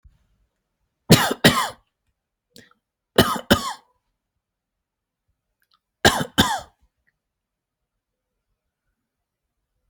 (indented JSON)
{
  "expert_labels": [
    {
      "quality": "good",
      "cough_type": "dry",
      "dyspnea": false,
      "wheezing": false,
      "stridor": false,
      "choking": false,
      "congestion": false,
      "nothing": true,
      "diagnosis": "upper respiratory tract infection",
      "severity": "mild"
    }
  ]
}